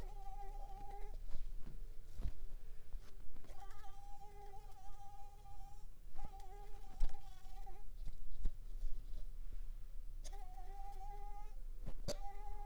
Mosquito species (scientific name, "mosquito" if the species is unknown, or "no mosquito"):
Mansonia uniformis